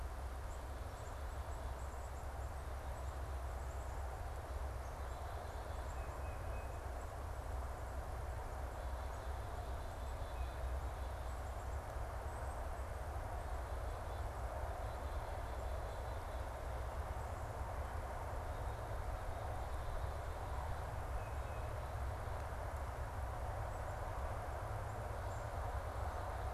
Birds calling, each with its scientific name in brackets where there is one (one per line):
Tufted Titmouse (Baeolophus bicolor)
Black-capped Chickadee (Poecile atricapillus)